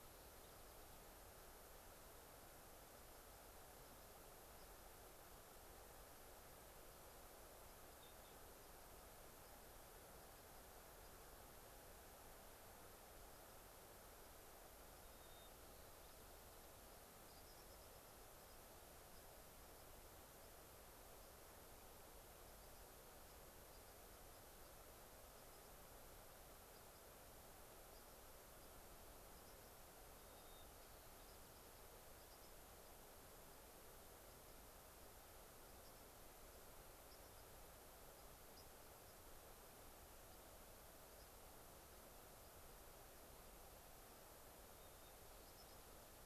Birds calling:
White-crowned Sparrow (Zonotrichia leucophrys), unidentified bird

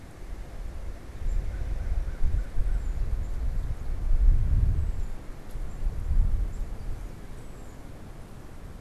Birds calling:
Tufted Titmouse (Baeolophus bicolor)

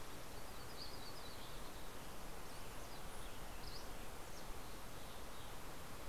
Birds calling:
Mountain Chickadee (Poecile gambeli), Yellow-rumped Warbler (Setophaga coronata), Dusky Flycatcher (Empidonax oberholseri)

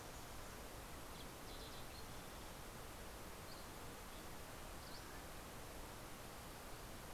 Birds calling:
Dusky Flycatcher (Empidonax oberholseri), Fox Sparrow (Passerella iliaca)

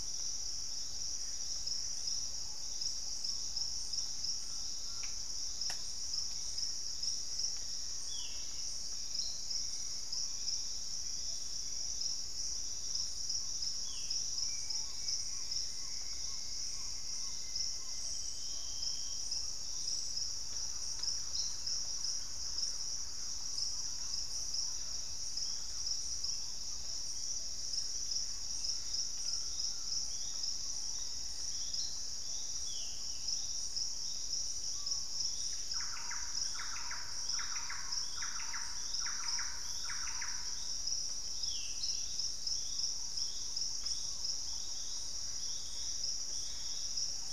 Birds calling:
Thrush-like Wren (Campylorhynchus turdinus), Rufous-capped Antthrush (Formicarius colma), Ringed Woodpecker (Celeus torquatus), Black-faced Antthrush (Formicarius analis), Collared Trogon (Trogon collaris), Gray Antbird (Cercomacra cinerascens), unidentified bird, Plumbeous Pigeon (Patagioenas plumbea), Purple-throated Fruitcrow (Querula purpurata), Hauxwell's Thrush (Turdus hauxwelli), Screaming Piha (Lipaugus vociferans), Ringed Antpipit (Corythopis torquatus)

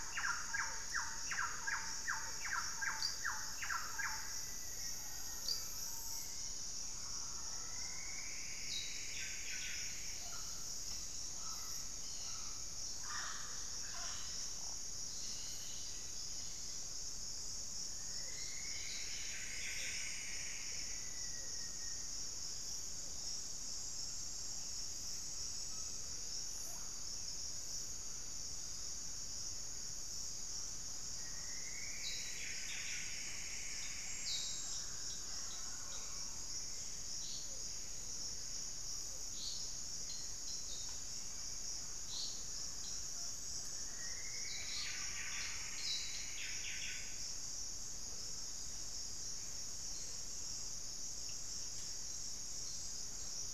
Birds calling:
Plumbeous Antbird (Myrmelastes hyperythrus), Hauxwell's Thrush (Turdus hauxwelli), Buff-breasted Wren (Cantorchilus leucotis), Black-faced Antthrush (Formicarius analis), Mealy Parrot (Amazona farinosa)

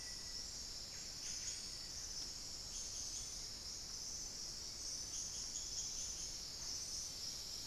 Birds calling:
Black-faced Antthrush (Formicarius analis), Buff-breasted Wren (Cantorchilus leucotis), unidentified bird

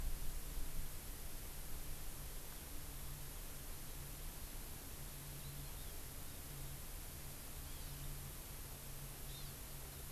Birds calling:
Hawaii Amakihi (Chlorodrepanis virens)

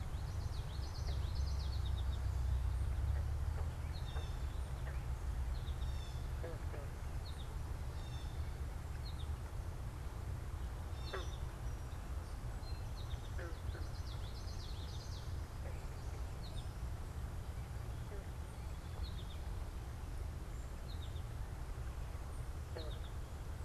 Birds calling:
Blue Jay (Cyanocitta cristata), American Goldfinch (Spinus tristis), Common Yellowthroat (Geothlypis trichas)

